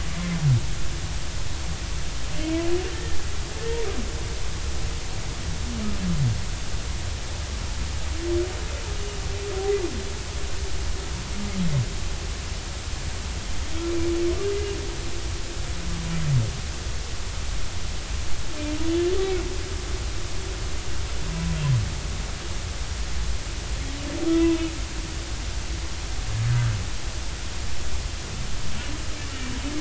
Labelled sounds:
24.4	24.7	humpback whale, 2.4 to 2.7 kHz

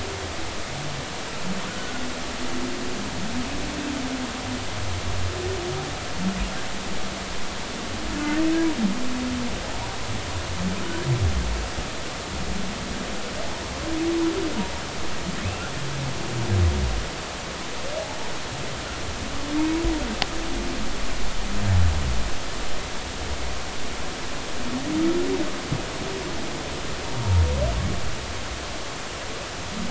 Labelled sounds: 1.7	1.9	humpback whale, 1.4 to 1.5 kHz
8.1	8.4	humpback whale, 1.4 to 1.6 kHz
15.4	15.7	humpback whale, 2.5 to 2.8 kHz

